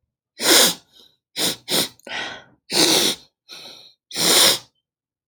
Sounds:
Sniff